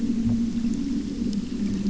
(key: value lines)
label: anthrophony, boat engine
recorder: SoundTrap 300